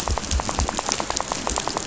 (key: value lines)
label: biophony, rattle
recorder: SoundTrap 500